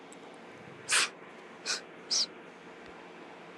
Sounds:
Sniff